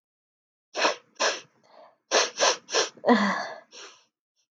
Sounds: Sniff